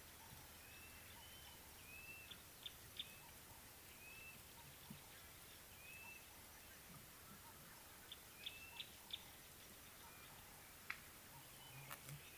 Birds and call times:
Blue-naped Mousebird (Urocolius macrourus): 2.0s
Gray-backed Camaroptera (Camaroptera brevicaudata): 2.6s

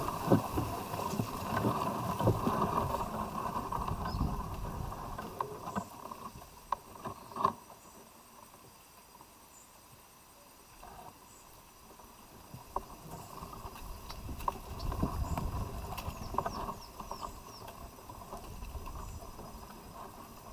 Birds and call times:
Baglafecht Weaver (Ploceus baglafecht): 16.7s

